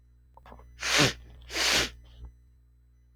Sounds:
Sniff